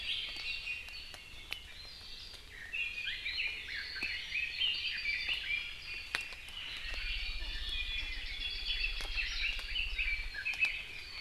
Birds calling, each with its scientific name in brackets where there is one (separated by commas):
Iiwi (Drepanis coccinea), Red-billed Leiothrix (Leiothrix lutea)